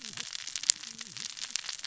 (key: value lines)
label: biophony, cascading saw
recorder: SoundTrap 600 or HydroMoth